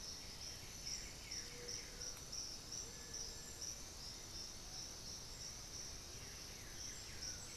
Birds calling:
Little Tinamou (Crypturellus soui)
Blue-gray Saltator (Saltator coerulescens)
Amazonian Motmot (Momotus momota)
White-winged Becard (Pachyramphus polychopterus)

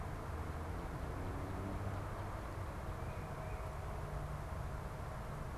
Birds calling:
Tufted Titmouse (Baeolophus bicolor)

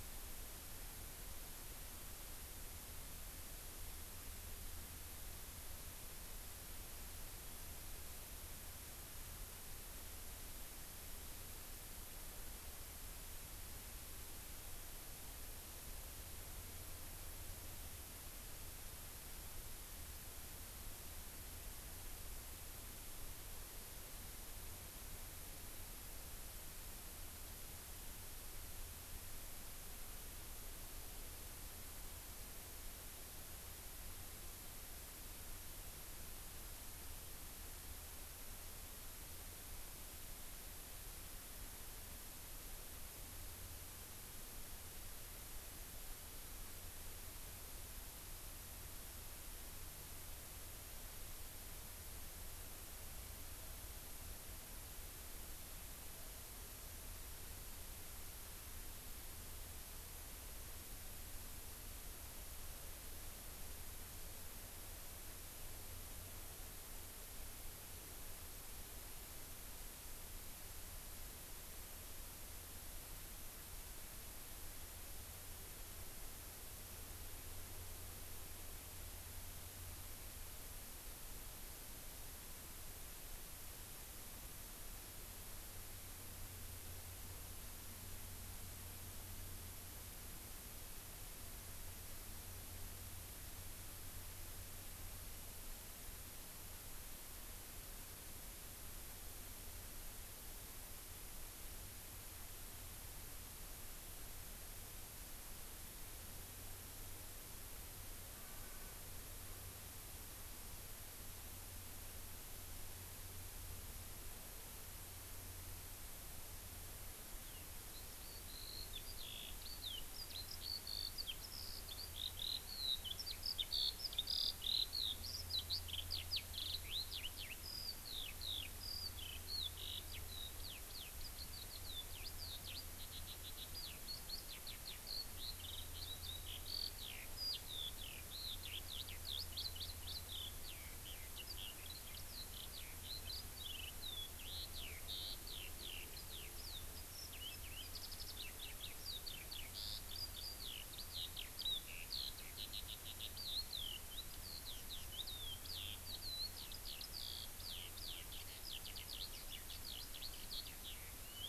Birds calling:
Eurasian Skylark (Alauda arvensis)

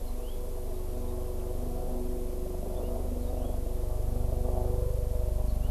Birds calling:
House Finch (Haemorhous mexicanus)

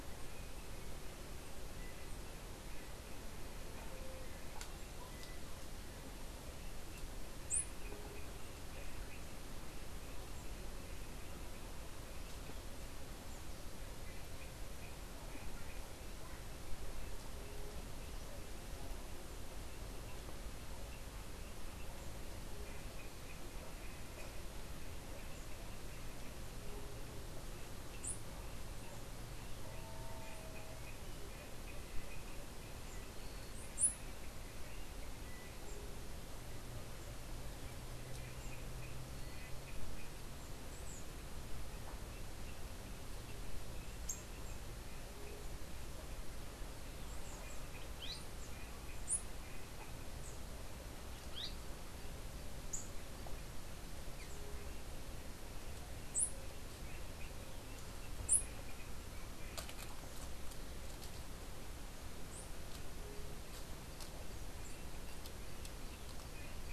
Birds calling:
Azara's Spinetail (Synallaxis azarae)

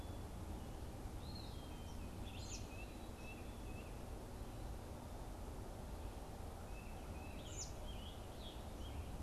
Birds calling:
American Robin (Turdus migratorius)
Scarlet Tanager (Piranga olivacea)
Eastern Wood-Pewee (Contopus virens)
Tufted Titmouse (Baeolophus bicolor)

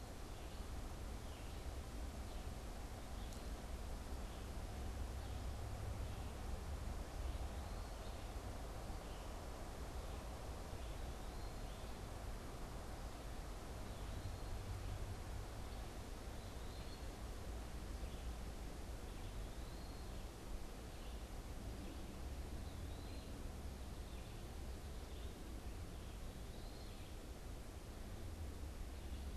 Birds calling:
Red-eyed Vireo (Vireo olivaceus)
Eastern Wood-Pewee (Contopus virens)

